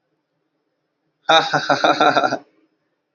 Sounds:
Laughter